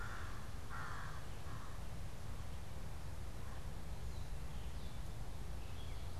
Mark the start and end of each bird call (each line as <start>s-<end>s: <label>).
0.0s-2.5s: American Crow (Corvus brachyrhynchos)
3.9s-6.2s: Gray Catbird (Dumetella carolinensis)